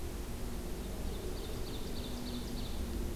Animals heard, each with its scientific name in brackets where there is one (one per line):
Ovenbird (Seiurus aurocapilla)